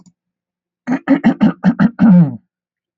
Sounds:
Throat clearing